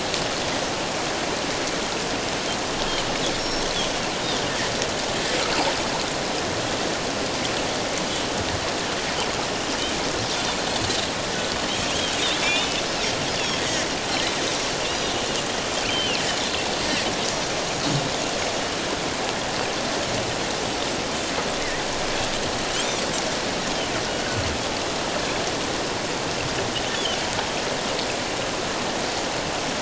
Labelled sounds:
3.4	3.7	Pacific white-sided dolphin, 5.4 to 5.6 kHz
12.4	12.8	Pacific white-sided dolphin, 2.2 to 7.2 kHz
15.9	16.2	Pacific white-sided dolphin, 2.5 to 3.2 kHz

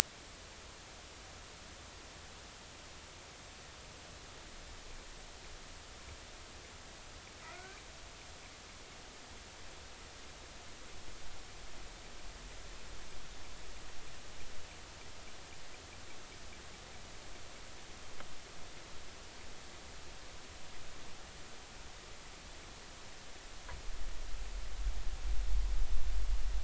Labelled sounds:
7.4	7.8	killer whale, northern resident, G clan, 1.2 to 2.3 kHz

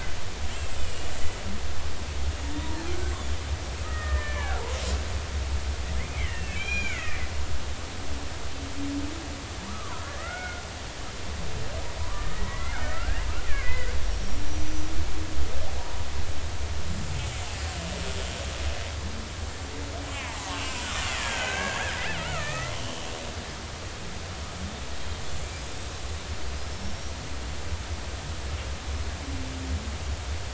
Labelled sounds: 0.8	1.1	killer whale, Bigg's (transient), 2.8 to 3.1 kHz
2.6	3.1	killer whale, Bigg's (transient), 0.80 to 1.6 kHz
3.8	4.6	killer whale, Bigg's (transient), 1.2 to 2.4 kHz
6.0	7.2	killer whale, Bigg's (transient), 1.7 to 7.2 kHz
7.7	8.2	killer whale, Bigg's (transient), 1.2 to 1.7 kHz
9.7	10.6	killer whale, Bigg's (transient), 0.93 to 2.3 kHz
12.0	13.2	killer whale, Bigg's (transient), 0.93 to 2.3 kHz
13.5	14.9	killer whale, Bigg's (transient), 1.5 to 6.0 kHz
20.1	23.1	killer whale, Bigg's (transient), 0.80 to 3.2 kHz
26.4	27.1	killer whale, Bigg's (transient), 4.6 to 5.8 kHz

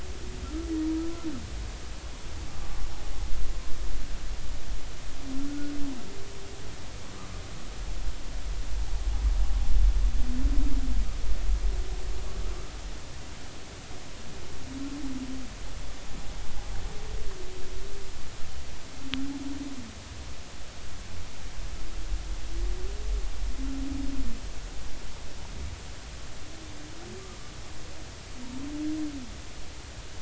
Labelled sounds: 0.4	0.7	humpback whale, 1.2 to 1.4 kHz
5.5	5.7	humpback whale, 1.4 to 1.5 kHz

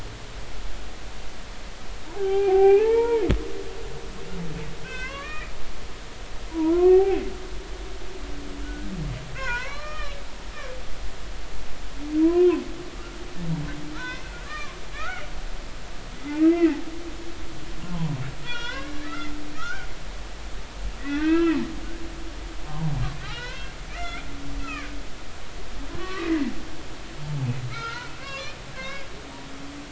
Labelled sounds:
2.1	3.2	humpback whale, 0.80 to 2.9 kHz
4.8	5.5	humpback whale, 0.99 to 3.2 kHz
6.5	7.2	humpback whale, 0.80 to 2.7 kHz
8.6	8.9	humpback whale, 1.3 to 1.5 kHz
9.4	10.2	humpback whale, 0.90 to 3.1 kHz
12.2	12.5	humpback whale, 0.93 to 1.1 kHz
13.9	15.2	humpback whale, 0.93 to 5.8 kHz
16.4	16.8	humpback whale, 1.8 to 2.8 kHz
17.8	19.9	humpback whale, 0.90 to 3.9 kHz
21.0	21.7	humpback whale, 0.93 to 2.8 kHz
22.7	22.9	humpback whale, 0.90 to 1.1 kHz
23.2	24.2	humpback whale, 1.2 to 5.6 kHz
24.6	24.9	humpback whale, 1.5 to 2.7 kHz
26.0	26.3	humpback whale, 1.0 to 1.2 kHz
27.2	29.1	humpback whale, 0.80 to 5.6 kHz

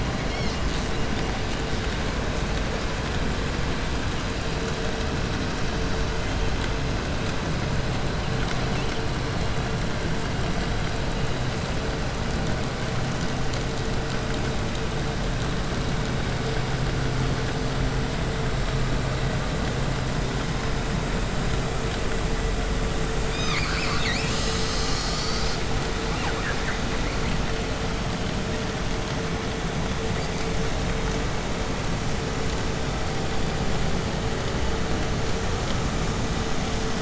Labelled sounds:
0.3	1.0	killer whale, 1.0 to 8.0 kHz
6.0	6.6	killer whale, 1.4 to 8.0 kHz
8.2	9.7	killer whale, 0.96 to 6.6 kHz
23.2	25.7	killer whale, southern resident, call S10, 0.65 to 8.0 kHz
26.0	27.6	killer whale, southern resident, call S10, 0.59 to 3.8 kHz

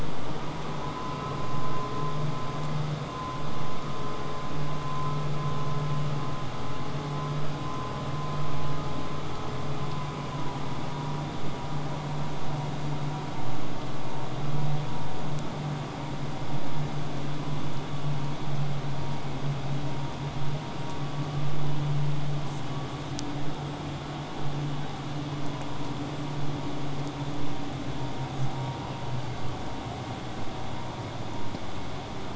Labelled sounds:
22.4	22.6	killer whale, southern resident, J pod, call S05, 5.6 to 8.0 kHz
23.7	24.3	killer whale, whistle, 7.7 to 8.0 kHz
28.3	28.5	killer whale, southern resident, J pod, call S05, 5.1 to 8.0 kHz

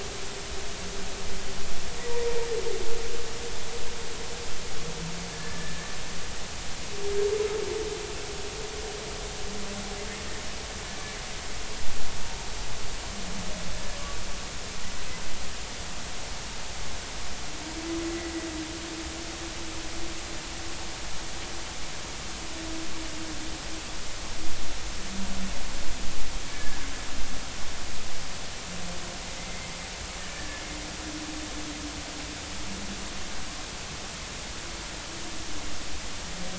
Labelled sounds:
5.3	5.9	humpback whale, 1.7 to 1.8 kHz
18.1	18.3	humpback whale, 1.9 to 2.2 kHz
26.5	26.8	humpback whale, 1.6 to 1.8 kHz
29.5	29.8	humpback whale, 2.0 to 2.2 kHz
30.2	30.6	humpback whale, 1.7 to 1.9 kHz

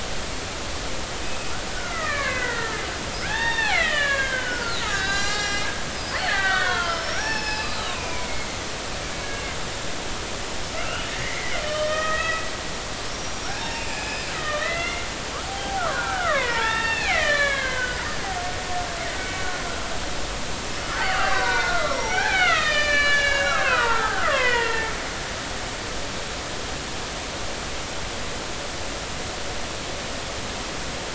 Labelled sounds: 1.2	2.8	killer whale, Bigg's (transient), 1.0 to 2.7 kHz
3.2	8.5	killer whale, Bigg's (transient), 0.80 to 7.6 kHz
9.1	9.4	killer whale, Bigg's (transient), 2.1 to 2.3 kHz
10.7	12.4	killer whale, Bigg's (transient), 1.2 to 3.2 kHz
13.1	18.1	killer whale, Bigg's (transient), 0.80 to 5.8 kHz
20.9	24.9	killer whale, Bigg's (transient), 0.80 to 7.0 kHz

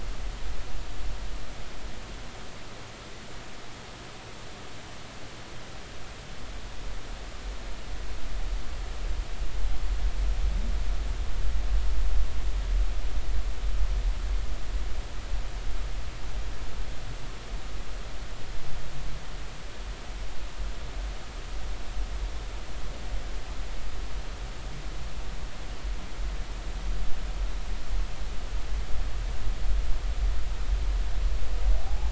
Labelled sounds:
31.9	32.0	humpback whale, 0.80 to 0.93 kHz

